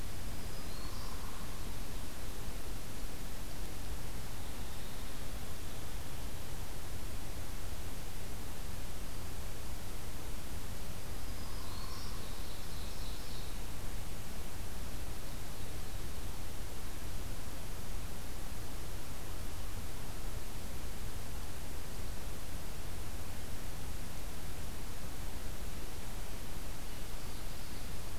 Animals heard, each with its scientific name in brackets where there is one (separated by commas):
Ovenbird (Seiurus aurocapilla), Black-throated Green Warbler (Setophaga virens), Hairy Woodpecker (Dryobates villosus)